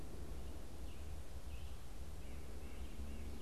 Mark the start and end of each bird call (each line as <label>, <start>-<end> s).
Red-eyed Vireo (Vireo olivaceus), 0.0-3.4 s
White-breasted Nuthatch (Sitta carolinensis), 0.0-3.4 s